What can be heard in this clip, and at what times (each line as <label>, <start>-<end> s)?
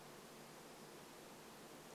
warbler song, 0-2 s